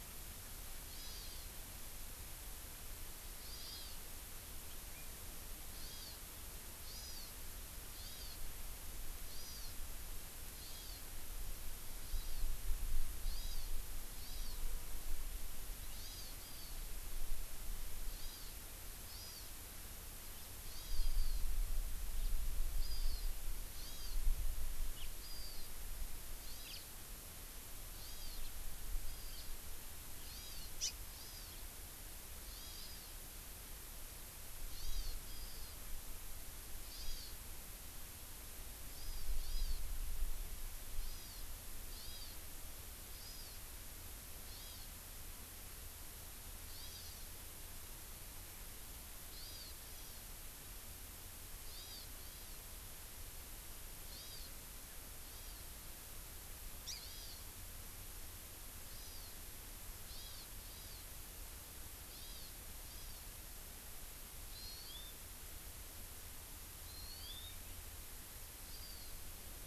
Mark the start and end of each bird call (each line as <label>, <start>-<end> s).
Hawaii Amakihi (Chlorodrepanis virens), 0.9-1.4 s
Hawaii Amakihi (Chlorodrepanis virens), 3.4-4.0 s
Hawaii Amakihi (Chlorodrepanis virens), 5.8-6.2 s
Hawaii Amakihi (Chlorodrepanis virens), 6.9-7.3 s
Hawaii Amakihi (Chlorodrepanis virens), 8.0-8.4 s
Hawaii Amakihi (Chlorodrepanis virens), 9.3-9.8 s
Hawaii Amakihi (Chlorodrepanis virens), 10.6-11.0 s
Hawaii Amakihi (Chlorodrepanis virens), 12.1-12.4 s
Hawaii Amakihi (Chlorodrepanis virens), 13.3-13.7 s
Hawaii Amakihi (Chlorodrepanis virens), 14.2-14.6 s
Hawaii Amakihi (Chlorodrepanis virens), 15.9-16.8 s
Hawaii Amakihi (Chlorodrepanis virens), 18.1-18.5 s
Hawaii Amakihi (Chlorodrepanis virens), 19.1-19.5 s
Hawaii Amakihi (Chlorodrepanis virens), 20.7-21.5 s
Hawaii Amakihi (Chlorodrepanis virens), 22.8-23.3 s
Hawaii Amakihi (Chlorodrepanis virens), 23.8-24.2 s
House Finch (Haemorhous mexicanus), 24.9-25.1 s
Hawaii Amakihi (Chlorodrepanis virens), 25.2-25.7 s
Hawaii Amakihi (Chlorodrepanis virens), 26.4-26.8 s
House Finch (Haemorhous mexicanus), 26.7-26.8 s
Hawaii Amakihi (Chlorodrepanis virens), 28.0-28.4 s
House Finch (Haemorhous mexicanus), 28.4-28.5 s
Hawaii Amakihi (Chlorodrepanis virens), 29.0-29.6 s
House Finch (Haemorhous mexicanus), 29.3-29.5 s
Hawaii Amakihi (Chlorodrepanis virens), 30.2-31.6 s
Hawaii Amakihi (Chlorodrepanis virens), 32.5-33.1 s
Hawaii Amakihi (Chlorodrepanis virens), 34.8-35.8 s
Hawaii Amakihi (Chlorodrepanis virens), 36.9-37.3 s
Hawaii Amakihi (Chlorodrepanis virens), 38.9-39.8 s
Hawaii Amakihi (Chlorodrepanis virens), 41.0-41.4 s
Hawaii Amakihi (Chlorodrepanis virens), 41.9-42.4 s
Hawaii Amakihi (Chlorodrepanis virens), 43.1-43.6 s
Hawaii Amakihi (Chlorodrepanis virens), 44.5-44.9 s
Hawaii Amakihi (Chlorodrepanis virens), 46.7-47.3 s
Hawaii Amakihi (Chlorodrepanis virens), 49.3-50.2 s
Hawaii Amakihi (Chlorodrepanis virens), 51.6-52.6 s
Hawaii Amakihi (Chlorodrepanis virens), 54.1-54.5 s
Hawaii Amakihi (Chlorodrepanis virens), 55.3-55.7 s
House Finch (Haemorhous mexicanus), 56.9-57.0 s
Hawaii Amakihi (Chlorodrepanis virens), 57.0-57.4 s
Hawaii Amakihi (Chlorodrepanis virens), 58.9-59.4 s
Hawaii Amakihi (Chlorodrepanis virens), 60.1-61.0 s
Hawaii Amakihi (Chlorodrepanis virens), 62.1-62.5 s
Hawaii Amakihi (Chlorodrepanis virens), 62.8-63.2 s
Hawaii Amakihi (Chlorodrepanis virens), 64.5-65.1 s
Hawaii Amakihi (Chlorodrepanis virens), 66.8-67.5 s
Hawaii Amakihi (Chlorodrepanis virens), 68.7-69.1 s